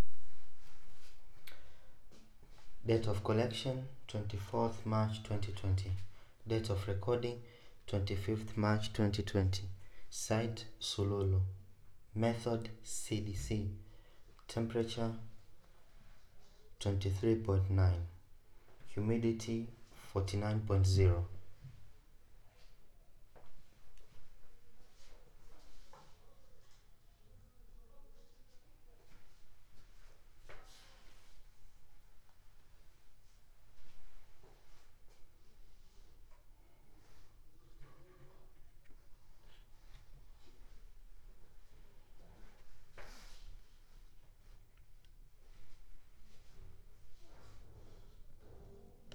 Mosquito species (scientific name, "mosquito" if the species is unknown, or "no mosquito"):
no mosquito